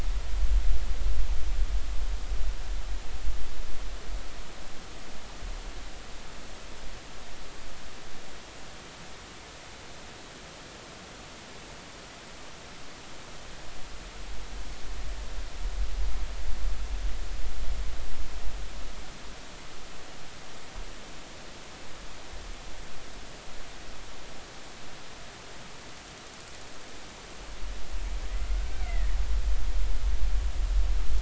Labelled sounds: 28.2	29.1	killer whale, Bigg's (transient), 1.8 to 2.4 kHz

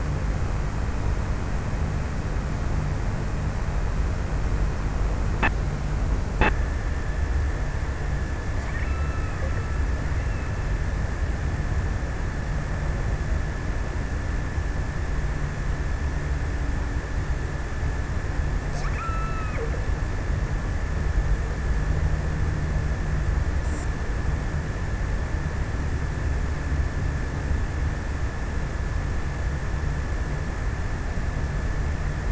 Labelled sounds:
8.0	10.3	killer whale, offshore, 1.0 to 3.0 kHz
18.2	20.2	killer whale, offshore, 0.94 to 2.8 kHz

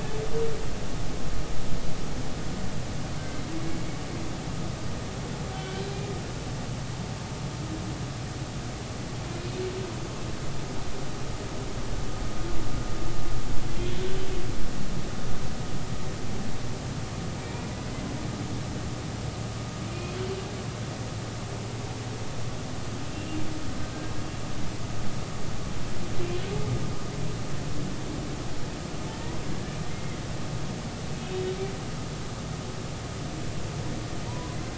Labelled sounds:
5.5	5.8	humpback whale, 1.4 to 3.2 kHz
17.4	17.7	humpback whale, 2.2 to 2.5 kHz
19.9	20.2	humpback whale, 2.4 to 2.6 kHz
29.9	30.2	humpback whale, 2.0 to 2.2 kHz
34.3	34.6	humpback whale, 0.90 to 1.1 kHz

